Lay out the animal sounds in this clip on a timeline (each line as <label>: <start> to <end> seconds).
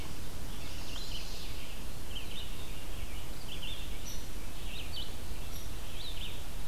Red-eyed Vireo (Vireo olivaceus): 0.0 to 6.7 seconds
Chestnut-sided Warbler (Setophaga pensylvanica): 0.4 to 1.7 seconds
Hairy Woodpecker (Dryobates villosus): 4.0 to 4.3 seconds
Hairy Woodpecker (Dryobates villosus): 5.5 to 5.8 seconds